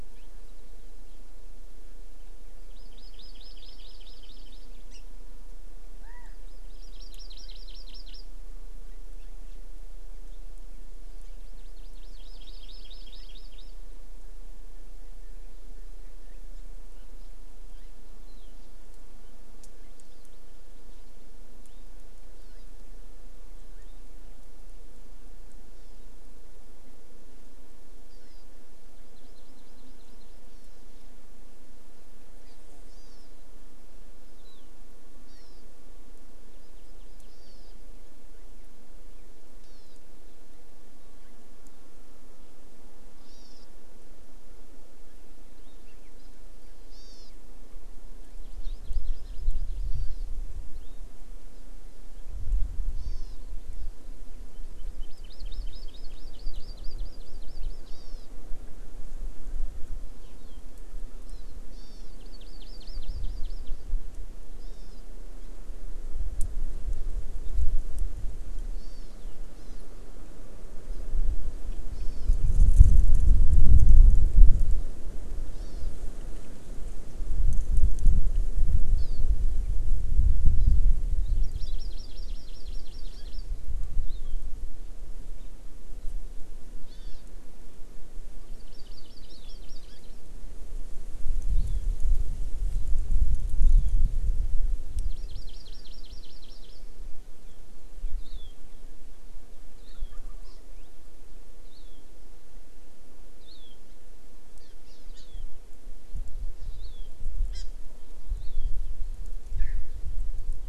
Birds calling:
Wild Turkey (Meleagris gallopavo), Chinese Hwamei (Garrulax canorus), Hawaii Amakihi (Chlorodrepanis virens)

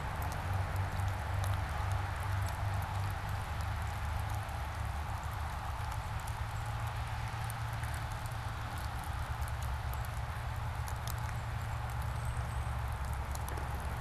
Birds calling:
unidentified bird, Tufted Titmouse (Baeolophus bicolor)

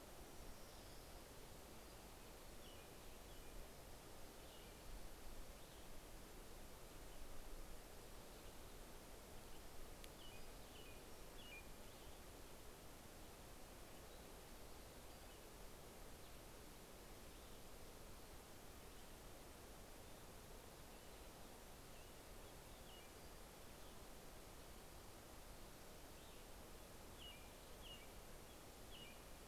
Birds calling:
Orange-crowned Warbler (Leiothlypis celata), American Robin (Turdus migratorius), Pacific-slope Flycatcher (Empidonax difficilis)

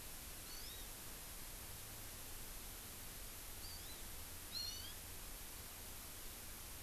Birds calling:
Hawaii Amakihi (Chlorodrepanis virens)

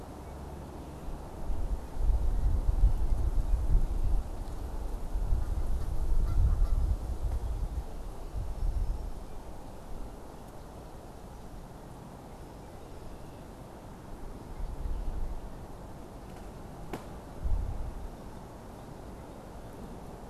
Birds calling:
Canada Goose (Branta canadensis)

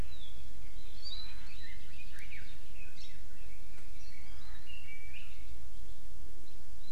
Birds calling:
Hawaii Creeper (Loxops mana), Red-billed Leiothrix (Leiothrix lutea)

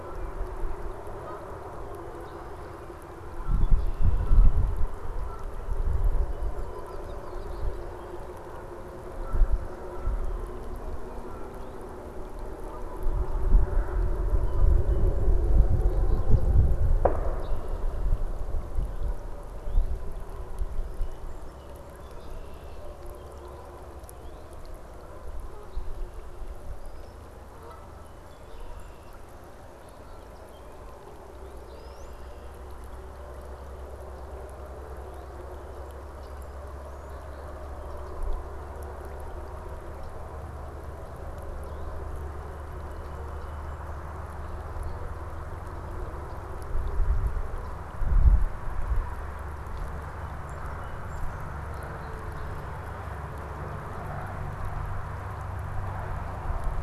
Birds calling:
Red-winged Blackbird (Agelaius phoeniceus), Song Sparrow (Melospiza melodia), Canada Goose (Branta canadensis), Brown-headed Cowbird (Molothrus ater)

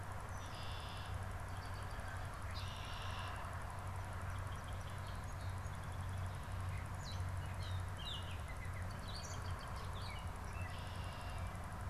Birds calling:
Red-winged Blackbird (Agelaius phoeniceus), American Robin (Turdus migratorius), Gray Catbird (Dumetella carolinensis), Song Sparrow (Melospiza melodia)

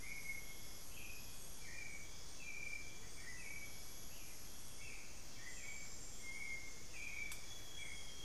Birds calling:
Hauxwell's Thrush (Turdus hauxwelli), Amazonian Grosbeak (Cyanoloxia rothschildii)

